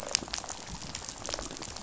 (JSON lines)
{"label": "biophony, rattle", "recorder": "SoundTrap 500"}